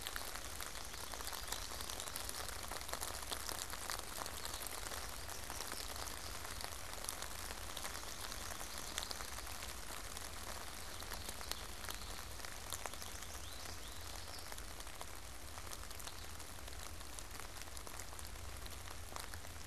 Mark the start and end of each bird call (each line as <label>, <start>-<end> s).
American Goldfinch (Spinus tristis), 12.2-14.6 s